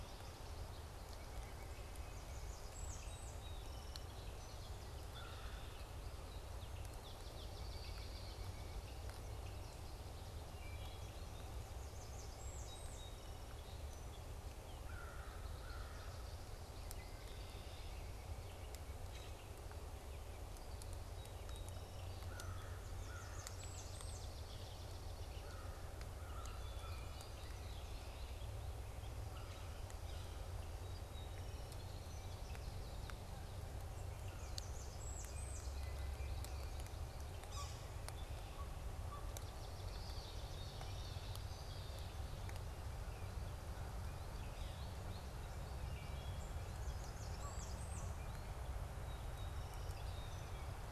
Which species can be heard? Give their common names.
American Goldfinch, White-breasted Nuthatch, Blackburnian Warbler, Song Sparrow, Red-winged Blackbird, Swamp Sparrow, Wood Thrush, American Crow, Common Grackle, Yellow-bellied Sapsucker, Canada Goose